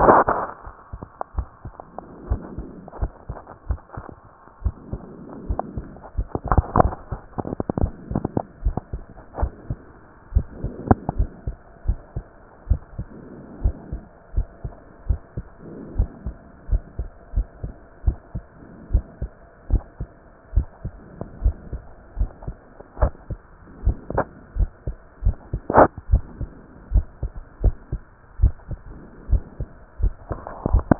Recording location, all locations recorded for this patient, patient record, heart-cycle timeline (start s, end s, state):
tricuspid valve (TV)
pulmonary valve (PV)+tricuspid valve (TV)+mitral valve (MV)
#Age: Child
#Sex: Male
#Height: 145.0 cm
#Weight: 34.1 kg
#Pregnancy status: False
#Murmur: Absent
#Murmur locations: nan
#Most audible location: nan
#Systolic murmur timing: nan
#Systolic murmur shape: nan
#Systolic murmur grading: nan
#Systolic murmur pitch: nan
#Systolic murmur quality: nan
#Diastolic murmur timing: nan
#Diastolic murmur shape: nan
#Diastolic murmur grading: nan
#Diastolic murmur pitch: nan
#Diastolic murmur quality: nan
#Outcome: Normal
#Campaign: 2015 screening campaign
0.00	11.43	unannotated
11.43	11.56	S2
11.56	11.81	diastole
11.81	11.98	S1
11.98	12.14	systole
12.14	12.24	S2
12.24	12.66	diastole
12.66	12.80	S1
12.80	12.96	systole
12.96	13.09	S2
13.09	13.58	diastole
13.58	13.74	S1
13.74	13.91	systole
13.91	14.02	S2
14.02	14.34	diastole
14.34	14.48	S1
14.48	14.63	systole
14.63	14.72	S2
14.72	15.06	diastole
15.06	15.20	S1
15.20	15.35	systole
15.35	15.46	S2
15.46	15.94	diastole
15.94	16.08	S1
16.08	16.24	systole
16.24	16.36	S2
16.36	16.67	diastole
16.67	16.84	S1
16.84	16.97	systole
16.97	17.10	S2
17.10	17.32	diastole
17.32	17.48	S1
17.48	17.62	systole
17.62	17.74	S2
17.74	18.04	diastole
18.04	18.18	S1
18.18	18.32	systole
18.32	18.46	S2
18.46	18.86	diastole
18.86	19.04	S1
19.04	19.20	systole
19.20	19.30	S2
19.30	19.70	diastole
19.70	19.84	S1
19.84	20.00	systole
20.00	20.12	S2
20.12	20.54	diastole
20.54	20.68	S1
20.68	20.83	systole
20.83	20.96	S2
20.96	21.38	diastole
21.38	21.56	S1
21.56	21.70	systole
21.70	21.84	S2
21.84	22.18	diastole
22.18	22.32	S1
22.32	22.46	systole
22.46	22.56	S2
22.56	22.96	diastole
22.96	23.14	S1
23.14	23.27	systole
23.27	23.40	S2
23.40	23.80	diastole
23.80	23.96	S1
23.96	24.12	systole
24.12	24.26	S2
24.26	24.56	diastole
24.56	24.72	S1
24.72	24.84	systole
24.84	24.96	S2
24.96	25.22	diastole
25.22	25.42	S1
25.42	30.99	unannotated